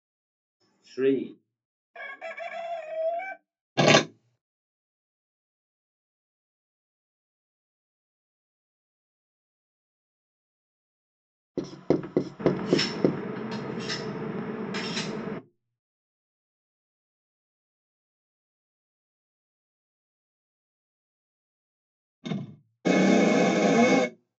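At 0.98 seconds, someone says "three". After that, at 1.93 seconds, a chicken can be heard. Next, at 3.76 seconds, there is crumpling. Later, at 11.54 seconds, you can hear writing. While that goes on, at 12.39 seconds, there is the sound of cutlery. Later, at 22.22 seconds, slamming can be heard. Following that, at 22.84 seconds, you can hear a chainsaw.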